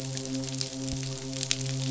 {"label": "biophony, midshipman", "recorder": "SoundTrap 500"}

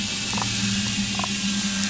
{"label": "anthrophony, boat engine", "recorder": "SoundTrap 500"}
{"label": "biophony, damselfish", "recorder": "SoundTrap 500"}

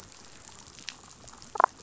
{"label": "biophony, damselfish", "recorder": "SoundTrap 500"}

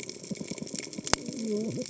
{"label": "biophony, cascading saw", "recorder": "HydroMoth"}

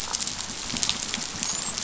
{"label": "biophony, dolphin", "recorder": "SoundTrap 500"}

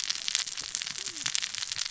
{"label": "biophony, cascading saw", "recorder": "SoundTrap 600 or HydroMoth"}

